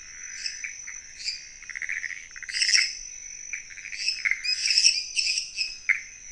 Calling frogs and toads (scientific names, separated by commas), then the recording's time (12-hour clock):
Pithecopus azureus, Dendropsophus minutus
11:15pm